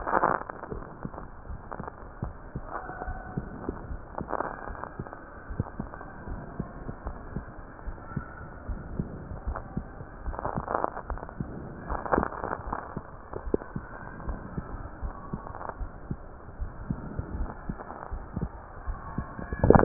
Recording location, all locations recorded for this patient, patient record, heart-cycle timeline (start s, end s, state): aortic valve (AV)
aortic valve (AV)+pulmonary valve (PV)+tricuspid valve (TV)
#Age: nan
#Sex: Female
#Height: nan
#Weight: nan
#Pregnancy status: True
#Murmur: Absent
#Murmur locations: nan
#Most audible location: nan
#Systolic murmur timing: nan
#Systolic murmur shape: nan
#Systolic murmur grading: nan
#Systolic murmur pitch: nan
#Systolic murmur quality: nan
#Diastolic murmur timing: nan
#Diastolic murmur shape: nan
#Diastolic murmur grading: nan
#Diastolic murmur pitch: nan
#Diastolic murmur quality: nan
#Outcome: Normal
#Campaign: 2015 screening campaign
0.00	3.76	unannotated
3.76	3.88	diastole
3.88	4.02	S1
4.02	4.15	systole
4.15	4.28	S2
4.28	4.65	diastole
4.65	4.76	S1
4.76	4.97	systole
4.97	5.05	S2
5.05	5.47	diastole
5.47	5.58	S1
5.58	5.78	systole
5.78	5.86	S2
5.86	6.26	diastole
6.26	6.39	S1
6.39	6.58	systole
6.58	6.68	S2
6.68	7.04	diastole
7.04	7.14	S1
7.14	7.34	systole
7.34	7.46	S2
7.46	7.86	diastole
7.86	7.98	S1
7.98	8.12	systole
8.12	8.24	S2
8.24	8.68	diastole
8.68	8.81	S1
8.81	8.92	systole
8.92	9.08	S2
9.08	9.42	diastole
9.42	9.58	S1
9.58	9.72	systole
9.72	9.84	S2
9.84	10.26	diastole
10.26	19.84	unannotated